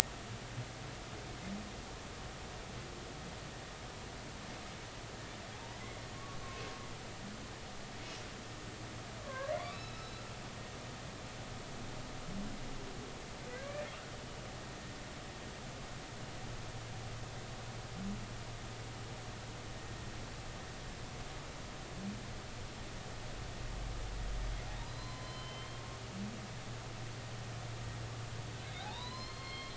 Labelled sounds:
5.5	5.8	humpback whale, 0.80 to 1.0 kHz
9.2	10.3	humpback whale, 0.96 to 4.1 kHz
13.5	13.9	humpback whale, 1.9 to 2.4 kHz
24.9	25.8	humpback whale, 0.96 to 4.2 kHz
28.8	29.7	humpback whale, 0.80 to 4.4 kHz

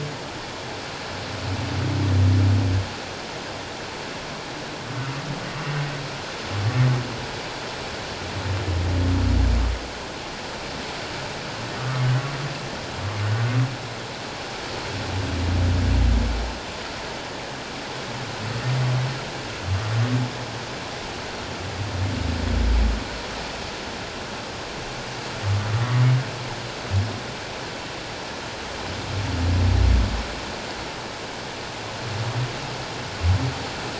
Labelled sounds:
11.8	12.1	humpback whale, 1.1 to 1.3 kHz

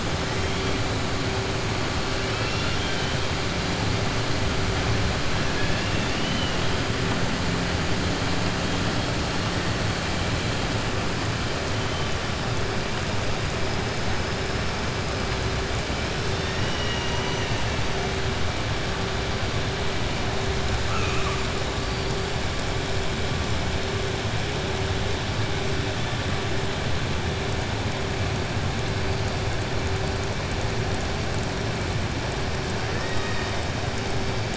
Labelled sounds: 2.3	3.1	killer whale, southern resident, 1.7 to 5.6 kHz
5.5	6.6	killer whale, southern resident, 1.7 to 3.7 kHz
16.3	17.5	killer whale, southern resident, 1.0 to 3.9 kHz
20.8	21.4	killer whale, southern resident, 1.0 to 3.1 kHz
32.9	33.6	killer whale, southern resident, 0.92 to 3.8 kHz

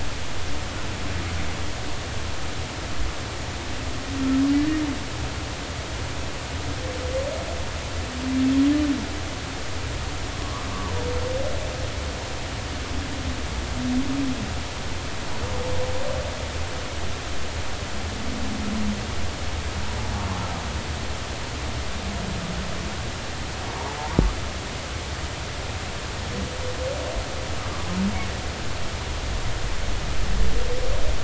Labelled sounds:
10.4	10.7	humpback whale, 0.96 to 1.2 kHz

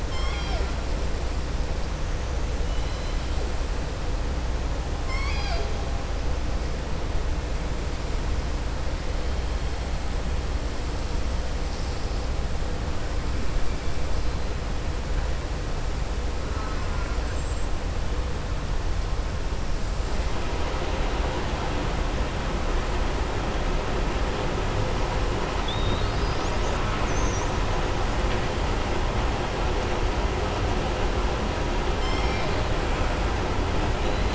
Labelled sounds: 0.0	0.7	killer whale, southern resident, 0.63 to 7.5 kHz
2.6	3.2	killer whale, southern resident, 2.0 to 5.0 kHz
5.0	5.7	killer whale, southern resident, 0.66 to 7.6 kHz
25.5	26.8	killer whale, southern resident, 3.1 to 7.8 kHz

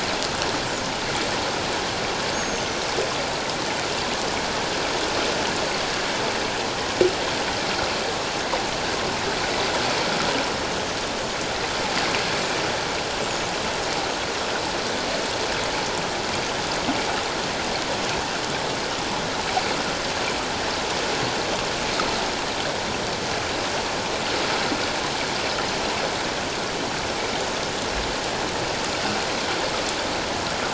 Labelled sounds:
2.3	2.8	killer whale, 5.6 to 6.7 kHz

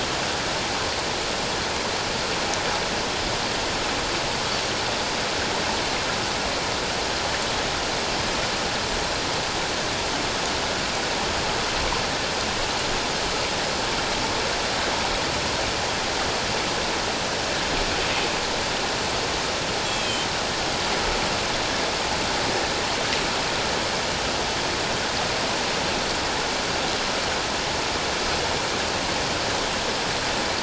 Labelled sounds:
19.9	20.3	Pacific white-sided dolphin, 2.4 to 3.4 kHz

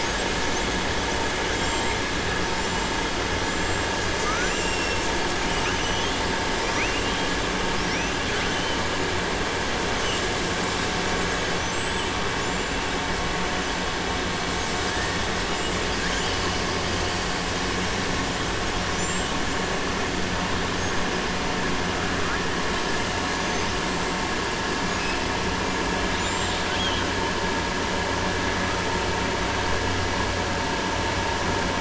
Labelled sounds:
3.4	3.8	killer whale, southern resident, 7.0 to 7.5 kHz
5.5	6.2	killer whale, southern resident, 1.9 to 4.1 kHz
6.6	7.2	killer whale, southern resident, 1.2 to 3.3 kHz
11.5	12.1	killer whale, southern resident, 5.9 to 7.9 kHz
26.1	27.1	killer whale, southern resident, 2.3 to 7.5 kHz

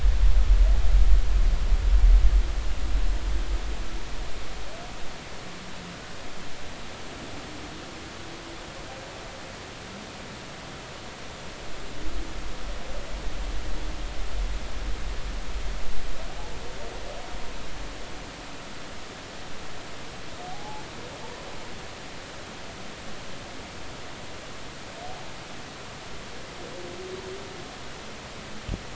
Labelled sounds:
20.5	20.8	humpback whale, 0.80 to 0.90 kHz

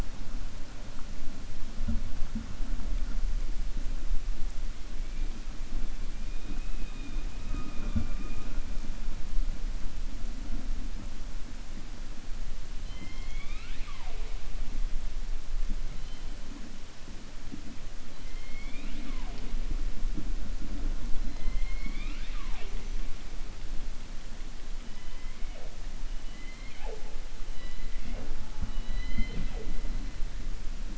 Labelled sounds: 12.8	14.3	killer whale, 0.48 to 4.9 kHz

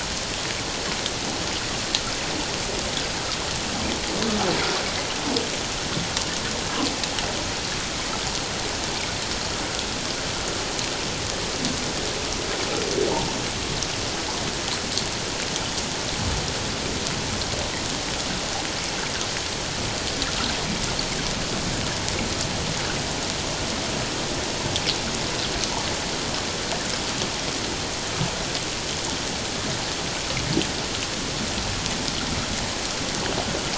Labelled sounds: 13.1	13.4	humpback whale, 0.84 to 0.97 kHz

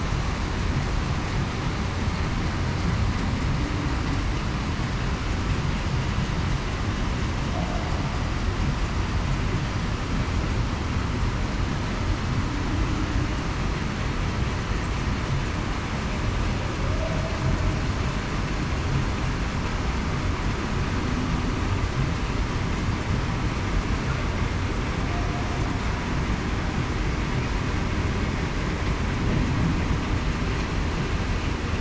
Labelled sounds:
16.9	17.4	humpback whale, 0.56 to 0.70 kHz

